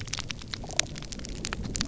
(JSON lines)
{"label": "biophony", "recorder": "SoundTrap 300"}